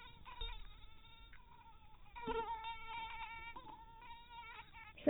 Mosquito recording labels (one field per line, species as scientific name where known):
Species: mosquito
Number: one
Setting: cup